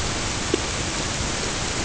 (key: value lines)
label: ambient
recorder: HydroMoth